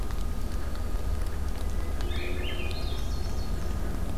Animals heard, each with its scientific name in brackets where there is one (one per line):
Swainson's Thrush (Catharus ustulatus)
Yellow-rumped Warbler (Setophaga coronata)
Blue-headed Vireo (Vireo solitarius)